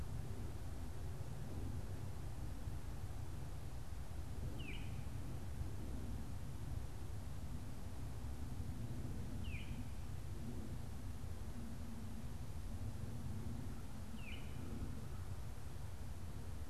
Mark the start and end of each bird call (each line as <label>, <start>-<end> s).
Baltimore Oriole (Icterus galbula), 4.4-5.0 s
Baltimore Oriole (Icterus galbula), 9.2-9.9 s
Baltimore Oriole (Icterus galbula), 14.0-14.6 s